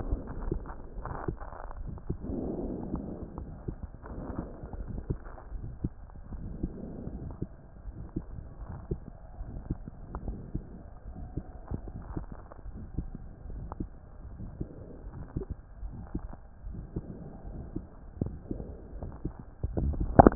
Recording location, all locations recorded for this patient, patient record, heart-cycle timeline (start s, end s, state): aortic valve (AV)
aortic valve (AV)+pulmonary valve (PV)+tricuspid valve (TV)+mitral valve (MV)
#Age: Adolescent
#Sex: Male
#Height: 148.0 cm
#Weight: 35.8 kg
#Pregnancy status: False
#Murmur: Present
#Murmur locations: aortic valve (AV)+mitral valve (MV)+pulmonary valve (PV)+tricuspid valve (TV)
#Most audible location: tricuspid valve (TV)
#Systolic murmur timing: Early-systolic
#Systolic murmur shape: Plateau
#Systolic murmur grading: II/VI
#Systolic murmur pitch: Low
#Systolic murmur quality: Harsh
#Diastolic murmur timing: nan
#Diastolic murmur shape: nan
#Diastolic murmur grading: nan
#Diastolic murmur pitch: nan
#Diastolic murmur quality: nan
#Outcome: Abnormal
#Campaign: 2015 screening campaign
0.00	0.80	unannotated
0.80	0.96	diastole
0.96	1.06	S1
1.06	1.26	systole
1.26	1.36	S2
1.36	1.80	diastole
1.80	1.90	S1
1.90	2.07	systole
2.07	2.17	S2
2.17	2.60	diastole
2.60	2.74	S1
2.74	2.89	systole
2.89	2.99	S2
2.99	3.36	diastole
3.36	3.45	S1
3.45	3.65	systole
3.65	3.75	S2
3.75	4.16	diastole
4.16	4.26	S1
4.26	4.35	systole
4.35	4.44	S2
4.44	4.76	diastole
4.76	4.87	S1
4.87	5.06	systole
5.06	5.18	S2
5.18	5.51	diastole
5.51	5.64	S1
5.64	5.81	systole
5.81	5.92	S2
5.92	6.28	diastole
6.28	6.42	S1
6.42	6.61	systole
6.61	6.72	S2
6.72	7.12	diastole
7.12	7.25	S1
7.25	7.38	systole
7.38	7.50	S2
7.50	7.83	diastole
7.83	7.96	S1
7.96	8.13	systole
8.13	8.26	S2
8.26	8.59	diastole
8.59	8.68	S1
8.68	8.87	systole
8.87	8.98	S2
8.98	9.36	diastole
9.36	9.50	S1
9.50	9.68	systole
9.68	9.78	S2
9.78	10.11	diastole
10.11	10.22	S1
10.22	10.52	systole
10.52	10.64	S2
10.64	11.04	diastole
11.04	11.13	S1
11.13	11.34	systole
11.34	11.45	S2
11.45	11.64	diastole
11.64	20.35	unannotated